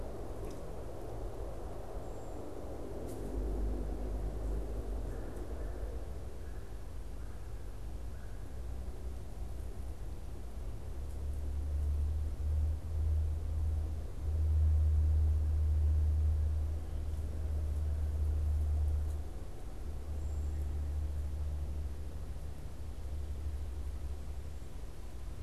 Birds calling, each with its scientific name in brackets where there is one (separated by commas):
Cedar Waxwing (Bombycilla cedrorum), American Crow (Corvus brachyrhynchos)